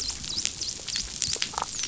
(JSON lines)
{"label": "biophony, dolphin", "recorder": "SoundTrap 500"}